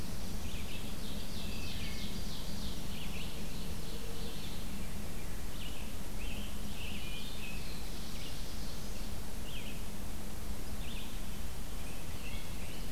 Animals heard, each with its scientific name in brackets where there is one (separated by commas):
Black-throated Blue Warbler (Setophaga caerulescens), Ovenbird (Seiurus aurocapilla), Red-eyed Vireo (Vireo olivaceus), Wood Thrush (Hylocichla mustelina), Scarlet Tanager (Piranga olivacea), Rose-breasted Grosbeak (Pheucticus ludovicianus), Chestnut-sided Warbler (Setophaga pensylvanica)